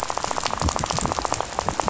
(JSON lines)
{"label": "biophony, rattle", "recorder": "SoundTrap 500"}